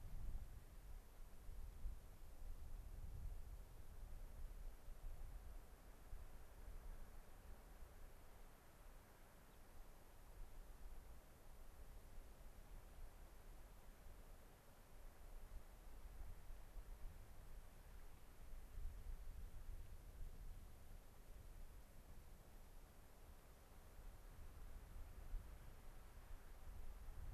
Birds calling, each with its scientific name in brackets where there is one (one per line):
unidentified bird